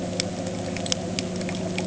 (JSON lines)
{"label": "anthrophony, boat engine", "recorder": "HydroMoth"}